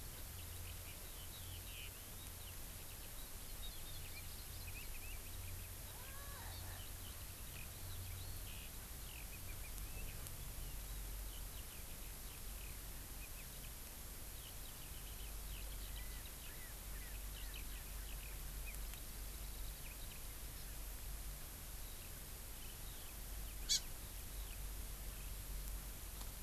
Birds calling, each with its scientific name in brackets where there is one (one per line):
Eurasian Skylark (Alauda arvensis)
Hawaii Amakihi (Chlorodrepanis virens)